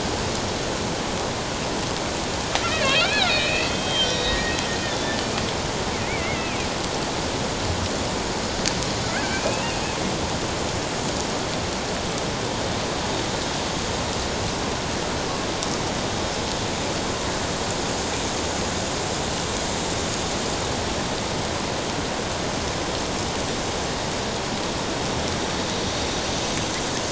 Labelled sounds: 2.7	4.6	killer whale, Bigg's (transient), 1.2 to 5.7 kHz
6.1	6.6	killer whale, Bigg's (transient), 1.9 to 2.7 kHz
9.0	9.8	killer whale, Bigg's (transient), 1.3 to 2.8 kHz

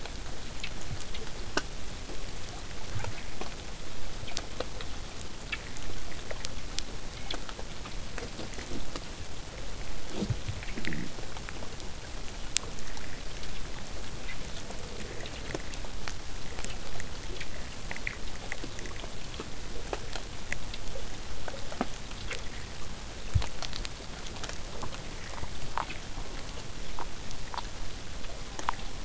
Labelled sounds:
26.1	26.7	killer whale, southern resident, J pod, call S04, 0.08 to 1.3 kHz

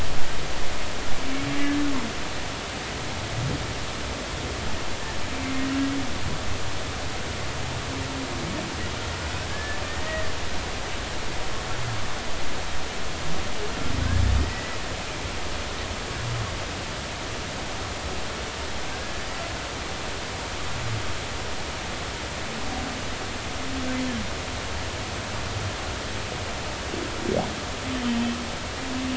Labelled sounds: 9.5	10.3	humpback whale, 1.6 to 2.0 kHz
14.5	14.8	humpback whale, 1.9 to 2.0 kHz
18.9	19.2	humpback whale, 1.5 to 1.7 kHz
28.0	28.4	humpback whale, 3.0 to 3.2 kHz

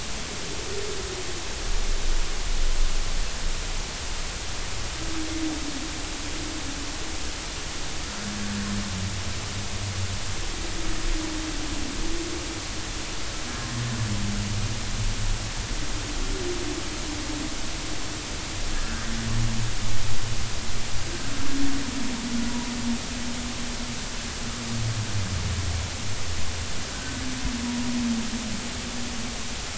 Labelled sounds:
18.8	19.1	humpback whale, 1.4 to 1.6 kHz
26.9	27.2	humpback whale, 1.4 to 1.6 kHz

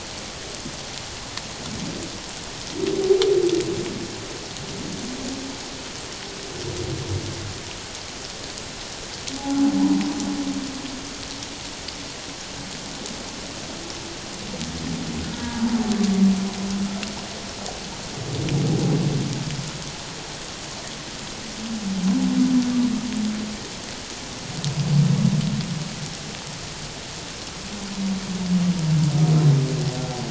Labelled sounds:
9.4	10.0	humpback whale, 0.78 to 1.0 kHz
15.2	15.6	humpback whale, 1.4 to 1.7 kHz

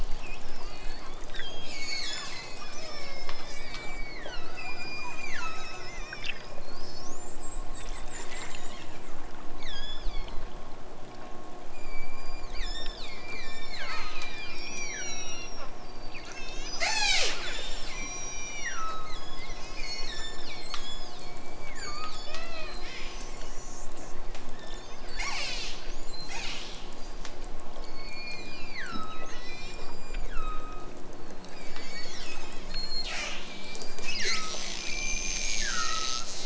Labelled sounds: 1.3	6.0	killer whale, southern Alaska resident, 0.87 to 8.0 kHz
9.6	10.6	killer whale, southern Alaska resident, 1.3 to 8.0 kHz
11.5	23.3	killer whale, southern Alaska resident, 0.23 to 8.0 kHz
24.5	26.9	killer whale, southern Alaska resident, 0.32 to 8.0 kHz
27.7	31.1	killer whale, southern Alaska resident, 0.83 to 8.0 kHz
31.5	36.4	killer whale, southern Alaska resident, 0.46 to 8.0 kHz

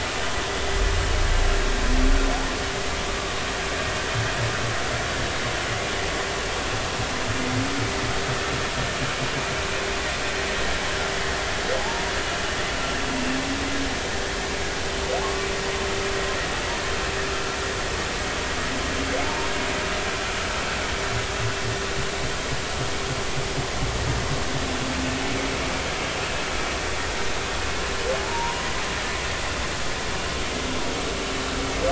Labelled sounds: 11.8	12.0	humpback whale, 0.80 to 0.96 kHz
15.2	15.5	humpback whale, 1.0 to 1.2 kHz
19.2	19.5	humpback whale, 0.83 to 0.99 kHz
28.2	28.7	humpback whale, 0.83 to 1.1 kHz

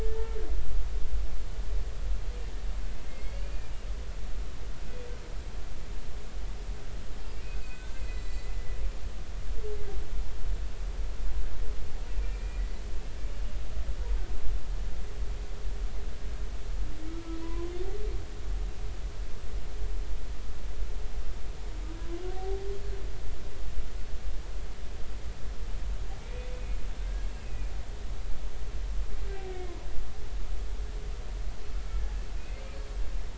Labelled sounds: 0.1	0.3	humpback whale, 1.7 to 1.9 kHz
3.0	3.8	humpback whale, 2.1 to 4.6 kHz
7.4	8.5	humpback whale, 1.5 to 7.6 kHz
12.2	12.6	humpback whale, 2.3 to 2.5 kHz
17.4	17.7	humpback whale, 0.93 to 1.1 kHz
22.3	22.6	humpback whale, 0.80 to 0.90 kHz
26.2	27.7	humpback whale, 1.5 to 2.7 kHz

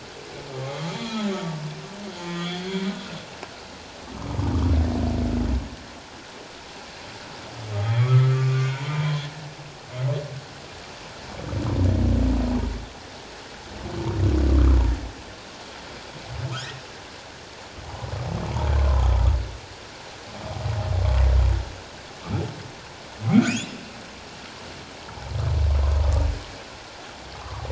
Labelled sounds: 0.6	1.3	humpback whale, 1.0 to 3.5 kHz
2.2	2.6	humpback whale, 1.2 to 3.5 kHz
4.1	4.4	humpback whale, 1.0 to 1.3 kHz
7.8	8.7	humpback whale, 1.1 to 3.4 kHz
23.5	23.7	humpback whale, 2.1 to 2.9 kHz
27.4	27.6	humpback whale, 0.91 to 1.3 kHz

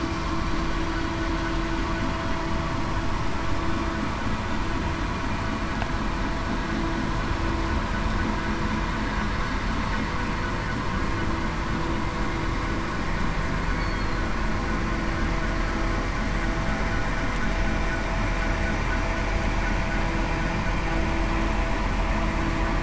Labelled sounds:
13.8	14.1	killer whale, southern resident, 4.2 to 4.5 kHz

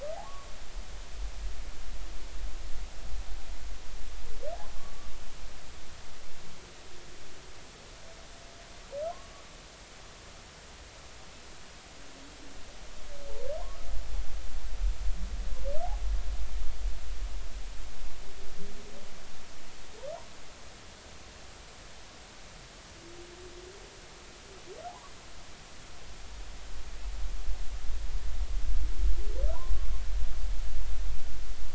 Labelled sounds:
4.8	5.1	humpback whale, 1.1 to 1.2 kHz
24.9	25.1	humpback whale, 0.80 to 1.2 kHz
29.5	29.9	humpback whale, 0.90 to 1.1 kHz

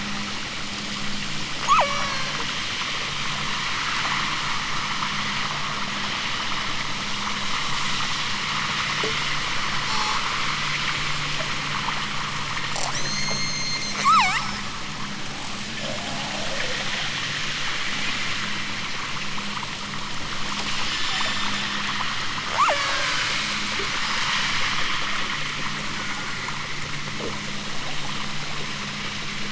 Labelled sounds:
1.6	2.4	killer whale, southern Alaska resident, 0.41 to 8.0 kHz
9.8	10.2	killer whale, southern Alaska resident, 3.0 to 8.0 kHz
12.8	14.7	killer whale, southern Alaska resident, 0.50 to 8.0 kHz
20.8	21.5	killer whale, southern Alaska resident, 2.8 to 7.6 kHz
22.5	23.2	killer whale, southern Alaska resident, 0.18 to 6.0 kHz
25.9	26.6	killer whale, southern Alaska resident, 0.96 to 2.0 kHz

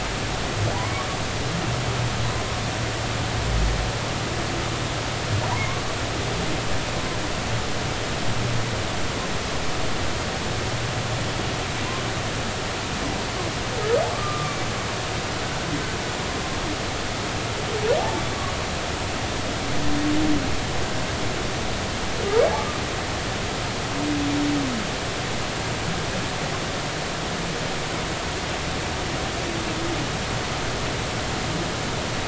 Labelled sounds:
0.7	1.1	humpback whale, 0.80 to 1.2 kHz
14.1	14.6	humpback whale, 1.1 to 1.2 kHz
22.5	22.8	humpback whale, 1.1 to 1.3 kHz

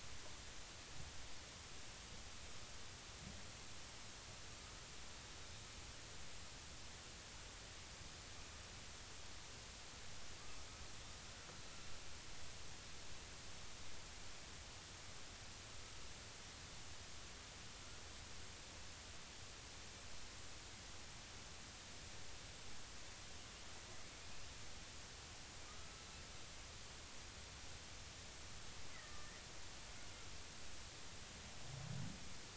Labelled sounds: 25.7	26.0	killer whale, northern resident, 1.2 to 1.4 kHz
28.9	29.3	killer whale, northern resident, 1.1 to 2.1 kHz

